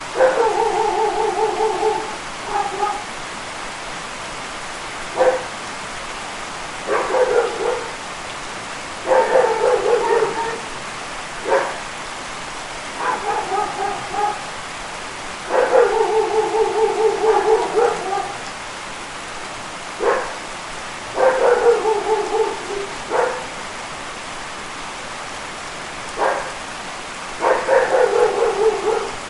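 Rain is falling. 0.0 - 29.3
A dog barks repeatedly. 0.1 - 2.2
A dog barks softly. 2.4 - 3.2
A dog barks. 5.1 - 5.5
A dog barks repeatedly. 6.8 - 8.0
Two dogs bark. 9.1 - 10.7
A dog barks. 11.4 - 11.8
A dog barks repeatedly. 13.0 - 14.5
A dog barks repeatedly. 15.4 - 17.1
Two dogs bark. 17.3 - 18.4
A dog barks. 20.0 - 20.3
A dog barks. 21.2 - 23.5
A dog barks. 26.2 - 26.5
A dog barks repeatedly. 27.5 - 29.2

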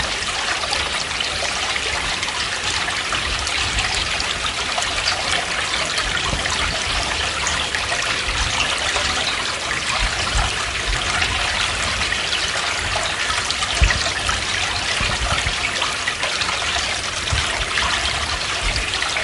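A small river flows slowly and quietly. 0.0 - 19.2

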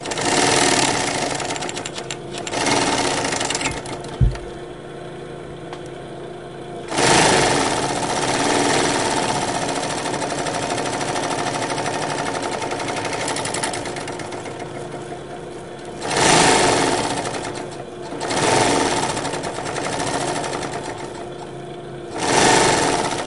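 A sewing machine sewing rhythmically nearby. 0.0 - 4.5
A sewing machine sewing rhythmically nearby. 6.9 - 15.1
A sewing machine is sewing rhythmically nearby. 15.9 - 23.3

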